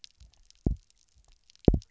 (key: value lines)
label: biophony, double pulse
recorder: SoundTrap 300